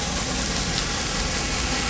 {"label": "anthrophony, boat engine", "recorder": "SoundTrap 500"}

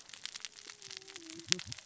{"label": "biophony, cascading saw", "recorder": "SoundTrap 600 or HydroMoth"}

